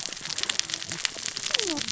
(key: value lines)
label: biophony, cascading saw
recorder: SoundTrap 600 or HydroMoth